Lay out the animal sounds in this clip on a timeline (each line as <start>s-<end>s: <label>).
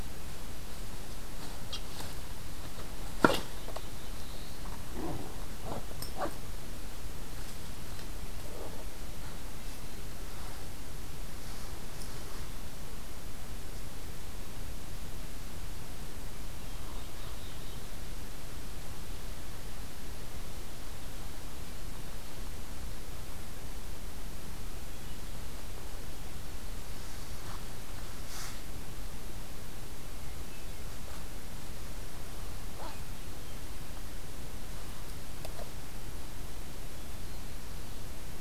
3.3s-4.7s: Black-throated Blue Warbler (Setophaga caerulescens)
16.7s-18.2s: Black-throated Blue Warbler (Setophaga caerulescens)
24.8s-25.5s: Hermit Thrush (Catharus guttatus)
29.9s-30.9s: Hermit Thrush (Catharus guttatus)
32.6s-33.6s: Hermit Thrush (Catharus guttatus)